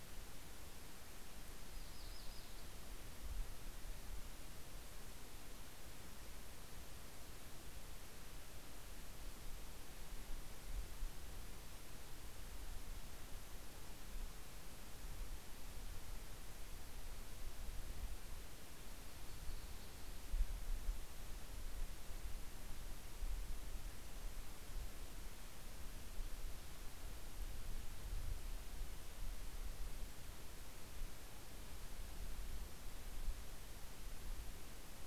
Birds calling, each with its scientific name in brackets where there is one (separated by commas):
Yellow-rumped Warbler (Setophaga coronata)